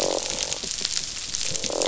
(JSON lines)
{"label": "biophony, croak", "recorder": "SoundTrap 500"}